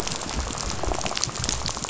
{"label": "biophony, rattle", "recorder": "SoundTrap 500"}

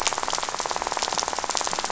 {"label": "biophony, rattle", "recorder": "SoundTrap 500"}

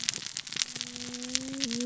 {"label": "biophony, cascading saw", "recorder": "SoundTrap 600 or HydroMoth"}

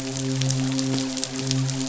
{"label": "biophony, midshipman", "recorder": "SoundTrap 500"}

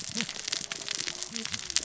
{"label": "biophony, cascading saw", "recorder": "SoundTrap 600 or HydroMoth"}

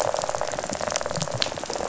{"label": "biophony, rattle", "recorder": "SoundTrap 500"}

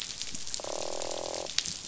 {"label": "biophony, croak", "recorder": "SoundTrap 500"}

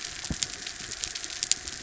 {"label": "anthrophony, mechanical", "recorder": "SoundTrap 300"}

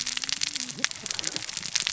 {"label": "biophony, cascading saw", "recorder": "SoundTrap 600 or HydroMoth"}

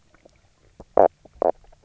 {"label": "biophony, knock croak", "recorder": "SoundTrap 300"}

